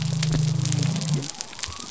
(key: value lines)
label: biophony
recorder: SoundTrap 300